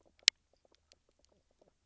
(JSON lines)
{"label": "biophony, knock croak", "recorder": "SoundTrap 300"}